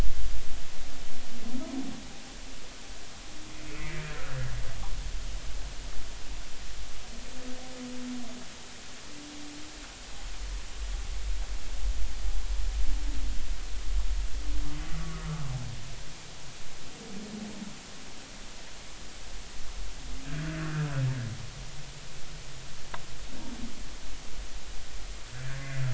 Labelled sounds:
3.8	4.0	humpback whale, 2.0 to 2.2 kHz
15.1	15.4	humpback whale, 1.1 to 1.4 kHz
20.3	20.9	humpback whale, 1.3 to 1.7 kHz
25.3	25.7	humpback whale, 1.4 to 1.8 kHz

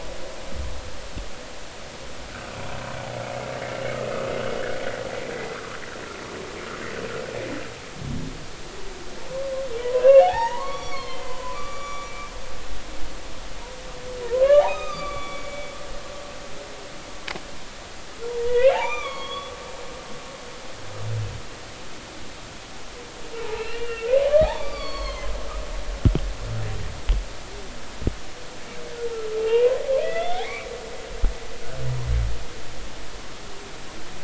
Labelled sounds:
9.8	12.3	humpback whale, 0.80 to 7.0 kHz
14.2	15.7	humpback whale, 0.90 to 6.4 kHz
18.4	19.5	humpback whale, 0.80 to 6.1 kHz
23.6	25.3	humpback whale, 0.80 to 6.6 kHz
29.4	31.4	humpback whale, 0.86 to 3.7 kHz

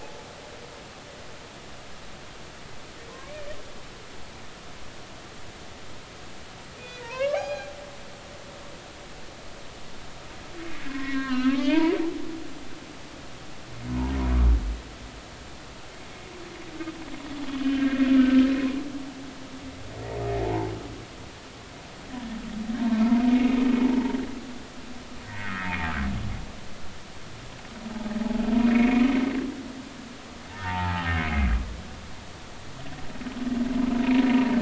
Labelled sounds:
3.1	3.5	humpback whale, 0.96 to 2.5 kHz
6.8	7.7	humpback whale, 0.80 to 5.0 kHz
10.9	11.9	humpback whale, 0.83 to 3.0 kHz
17.6	18.4	humpback whale, 1.5 to 1.9 kHz
20.4	20.7	humpback whale, 0.80 to 1.0 kHz
22.8	23.1	humpback whale, 0.86 to 1.2 kHz
25.2	25.9	humpback whale, 1.2 to 2.6 kHz
27.9	28.2	humpback whale, 0.80 to 0.96 kHz
28.7	29.1	humpback whale, 2.1 to 2.6 kHz
30.5	31.6	humpback whale, 0.80 to 2.4 kHz

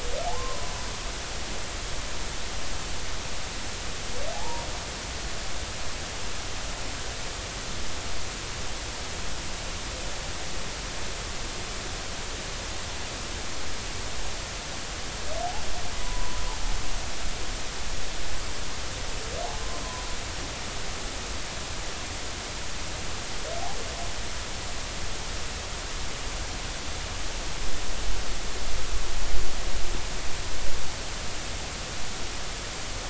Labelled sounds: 0.3	0.9	humpback whale, 0.93 to 1.1 kHz
4.3	4.6	humpback whale, 0.80 to 0.99 kHz
16.0	16.4	humpback whale, 0.96 to 1.1 kHz
19.8	20.1	humpback whale, 0.96 to 1.1 kHz

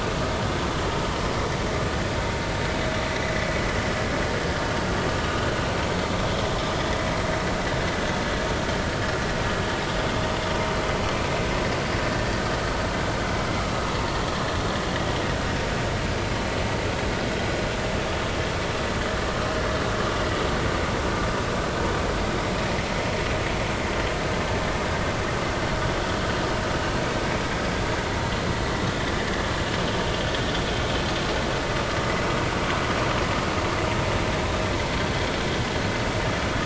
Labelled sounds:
13.5	13.7	vessel noise, 1.1 to 1.4 kHz

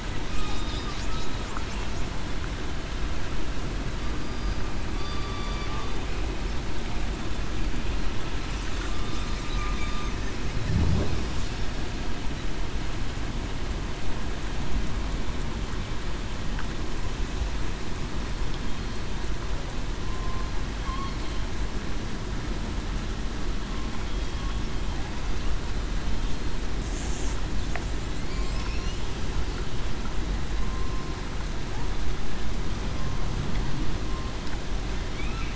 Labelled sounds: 4.0	4.6	killer whale, southern resident, 4.7 to 4.9 kHz
4.9	5.5	killer whale, southern resident, 1.1 to 4.8 kHz
20.0	20.5	killer whale, southern resident, 1.0 to 1.1 kHz

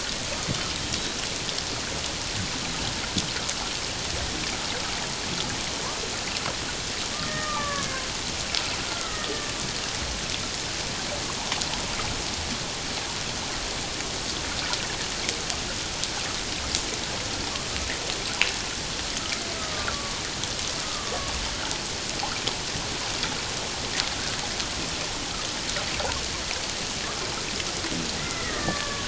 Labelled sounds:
0.9	1.2	killer whale, Bigg's (transient), 3.8 to 4.0 kHz
7.1	8.0	killer whale, Bigg's (transient), 1.1 to 2.2 kHz
8.8	9.5	killer whale, Bigg's (transient), 1.1 to 1.5 kHz
19.6	20.2	killer whale, Bigg's (transient), 1.1 to 1.3 kHz
20.8	21.3	killer whale, Bigg's (transient), 1.1 to 1.3 kHz
28.2	29.0	killer whale, Bigg's (transient), 1.0 to 2.1 kHz

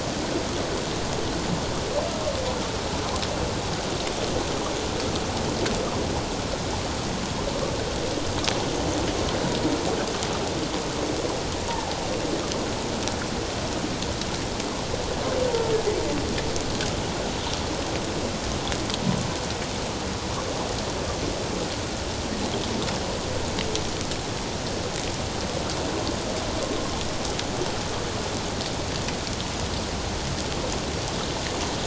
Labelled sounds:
11.7	11.9	humpback whale, 0.78 to 1.0 kHz

